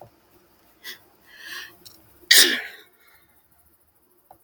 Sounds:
Sneeze